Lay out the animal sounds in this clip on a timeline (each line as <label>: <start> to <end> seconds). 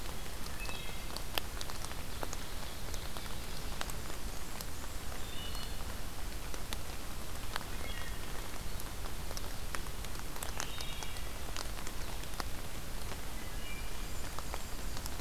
Wood Thrush (Hylocichla mustelina): 0.4 to 1.2 seconds
Ovenbird (Seiurus aurocapilla): 1.4 to 3.8 seconds
Blackburnian Warbler (Setophaga fusca): 3.9 to 5.2 seconds
Wood Thrush (Hylocichla mustelina): 5.1 to 5.9 seconds
Wood Thrush (Hylocichla mustelina): 7.7 to 8.3 seconds
Wood Thrush (Hylocichla mustelina): 10.6 to 11.4 seconds
Wood Thrush (Hylocichla mustelina): 13.1 to 14.1 seconds
Yellow-rumped Warbler (Setophaga coronata): 13.5 to 15.2 seconds